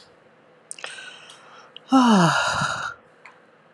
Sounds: Sigh